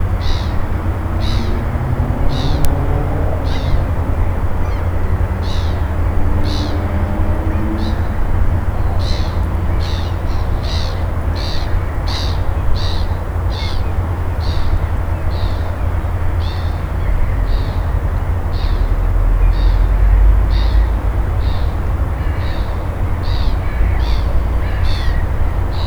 Are there vehicles around?
yes